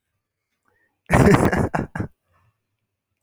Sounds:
Laughter